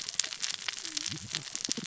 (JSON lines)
{"label": "biophony, cascading saw", "recorder": "SoundTrap 600 or HydroMoth"}